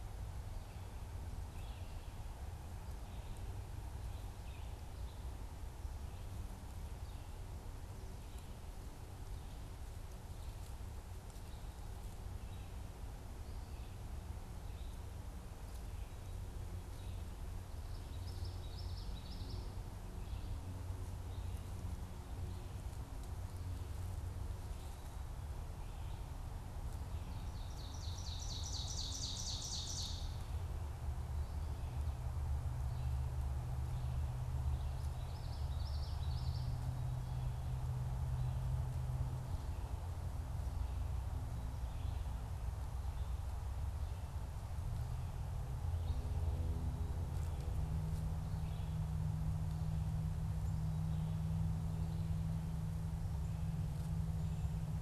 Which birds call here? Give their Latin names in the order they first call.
Vireo olivaceus, Geothlypis trichas, Seiurus aurocapilla